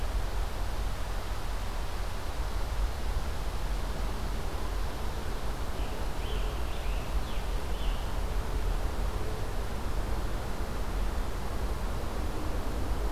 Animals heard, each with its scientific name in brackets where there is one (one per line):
Scarlet Tanager (Piranga olivacea)